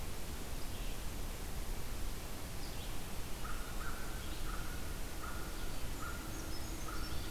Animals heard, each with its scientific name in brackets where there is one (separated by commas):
American Crow (Corvus brachyrhynchos), Red-eyed Vireo (Vireo olivaceus), Brown Creeper (Certhia americana)